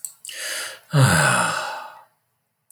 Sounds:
Sigh